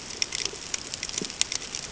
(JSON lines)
{"label": "ambient", "recorder": "HydroMoth"}